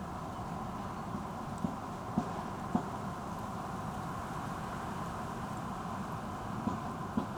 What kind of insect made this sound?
orthopteran